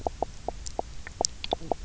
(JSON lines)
{"label": "biophony, knock croak", "recorder": "SoundTrap 300"}